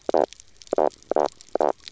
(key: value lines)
label: biophony, knock croak
recorder: SoundTrap 300